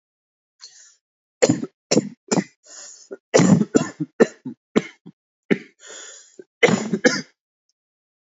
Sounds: Cough